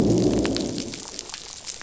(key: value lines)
label: biophony, growl
recorder: SoundTrap 500